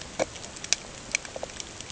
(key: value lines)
label: ambient
recorder: HydroMoth